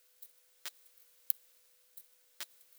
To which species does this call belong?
Leptophyes punctatissima